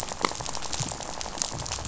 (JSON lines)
{"label": "biophony, rattle", "recorder": "SoundTrap 500"}